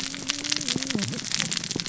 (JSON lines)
{"label": "biophony, cascading saw", "recorder": "SoundTrap 600 or HydroMoth"}